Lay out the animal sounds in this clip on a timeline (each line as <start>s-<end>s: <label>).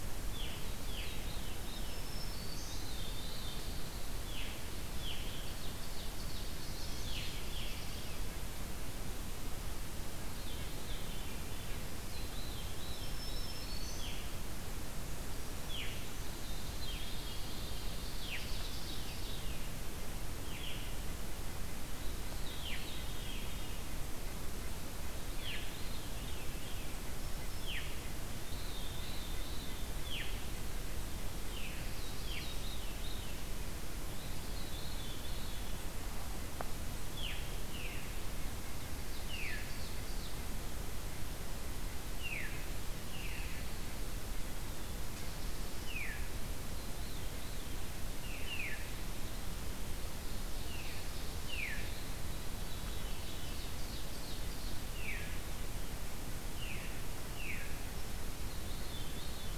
0.0s-2.1s: Veery (Catharus fuscescens)
1.9s-3.0s: Black-throated Green Warbler (Setophaga virens)
2.7s-5.4s: Veery (Catharus fuscescens)
5.5s-6.9s: Ovenbird (Seiurus aurocapilla)
6.0s-8.3s: Black-throated Blue Warbler (Setophaga caerulescens)
7.0s-7.9s: Veery (Catharus fuscescens)
10.1s-11.5s: Veery (Catharus fuscescens)
11.9s-13.7s: Veery (Catharus fuscescens)
12.9s-14.2s: Black-throated Green Warbler (Setophaga virens)
15.6s-15.9s: Veery (Catharus fuscescens)
16.2s-18.1s: Veery (Catharus fuscescens)
17.9s-19.5s: Ovenbird (Seiurus aurocapilla)
20.3s-20.7s: Veery (Catharus fuscescens)
22.2s-23.8s: Veery (Catharus fuscescens)
25.3s-26.9s: Veery (Catharus fuscescens)
27.5s-27.9s: Veery (Catharus fuscescens)
28.4s-30.3s: Veery (Catharus fuscescens)
31.4s-31.7s: Veery (Catharus fuscescens)
32.1s-33.6s: Veery (Catharus fuscescens)
34.1s-35.7s: Veery (Catharus fuscescens)
37.0s-38.1s: Veery (Catharus fuscescens)
38.6s-40.5s: Ovenbird (Seiurus aurocapilla)
39.2s-39.7s: Veery (Catharus fuscescens)
42.0s-42.6s: Veery (Catharus fuscescens)
43.0s-43.7s: Veery (Catharus fuscescens)
45.8s-46.2s: Veery (Catharus fuscescens)
46.6s-47.9s: Veery (Catharus fuscescens)
48.2s-48.8s: Veery (Catharus fuscescens)
49.8s-51.6s: Ovenbird (Seiurus aurocapilla)
51.5s-51.8s: Veery (Catharus fuscescens)
52.4s-53.6s: Veery (Catharus fuscescens)
52.7s-54.8s: Ovenbird (Seiurus aurocapilla)
54.8s-55.4s: Veery (Catharus fuscescens)
56.5s-57.7s: Veery (Catharus fuscescens)
58.4s-59.5s: Veery (Catharus fuscescens)